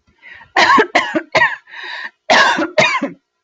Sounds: Cough